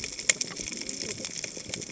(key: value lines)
label: biophony, cascading saw
recorder: HydroMoth